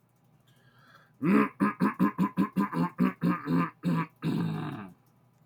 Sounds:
Throat clearing